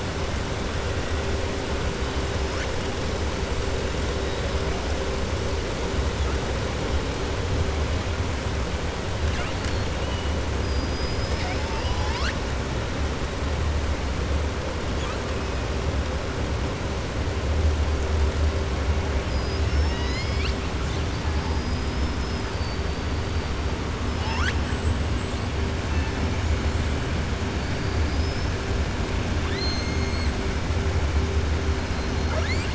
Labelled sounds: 19.2	20.6	killer whale, southern resident, 1.3 to 7.4 kHz
27.6	28.5	killer whale, southern resident, 4.5 to 5.4 kHz
29.4	30.3	killer whale, southern resident, 1.1 to 4.4 kHz

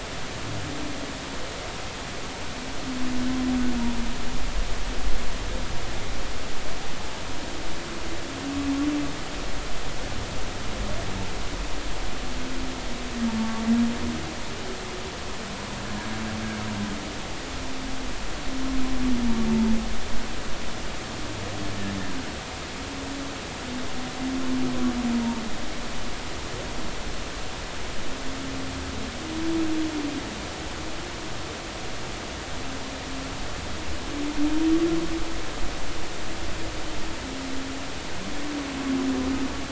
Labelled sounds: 13.4	13.6	humpback whale, 1.1 to 1.2 kHz

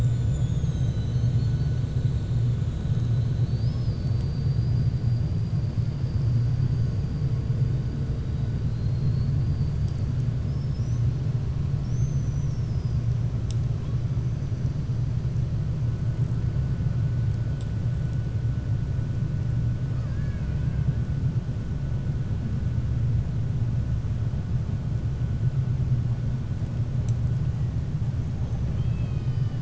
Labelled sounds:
10.4	11.1	killer whale, 5.0 to 6.4 kHz
11.7	13.0	killer whale, 4.9 to 6.5 kHz
19.9	20.9	killer whale, 1.1 to 3.5 kHz
28.6	29.6	killer whale, 1.2 to 5.4 kHz

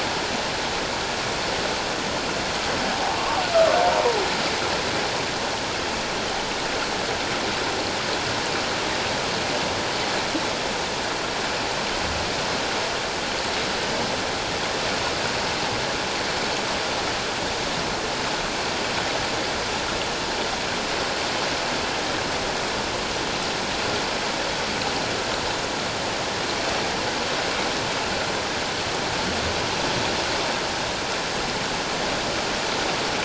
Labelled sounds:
2.9	3.8	humpback whale, 0.78 to 1.4 kHz

